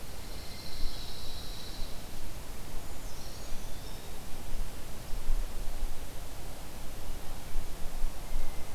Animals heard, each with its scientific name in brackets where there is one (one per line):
Pine Warbler (Setophaga pinus)
Eastern Wood-Pewee (Contopus virens)
Brown Creeper (Certhia americana)